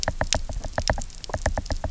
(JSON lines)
{"label": "biophony, knock", "recorder": "SoundTrap 300"}